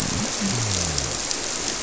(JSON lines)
{"label": "biophony", "recorder": "SoundTrap 300"}